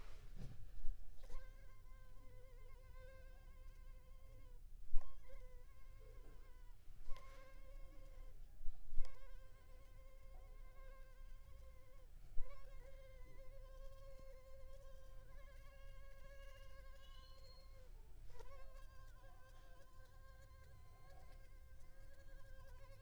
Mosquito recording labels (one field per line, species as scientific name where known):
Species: Culex pipiens complex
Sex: female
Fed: unfed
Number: one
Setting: cup